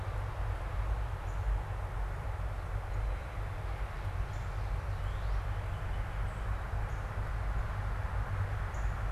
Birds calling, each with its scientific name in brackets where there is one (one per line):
Northern Cardinal (Cardinalis cardinalis)